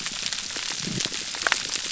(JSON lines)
{"label": "biophony", "recorder": "SoundTrap 300"}